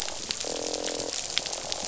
{"label": "biophony, croak", "recorder": "SoundTrap 500"}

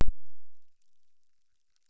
{"label": "biophony, chorus", "recorder": "SoundTrap 600"}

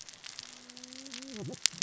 {"label": "biophony, cascading saw", "recorder": "SoundTrap 600 or HydroMoth"}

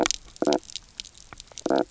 {"label": "biophony, knock croak", "recorder": "SoundTrap 300"}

